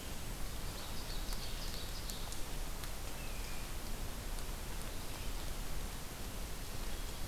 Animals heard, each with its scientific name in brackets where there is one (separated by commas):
Red-eyed Vireo (Vireo olivaceus), Ovenbird (Seiurus aurocapilla)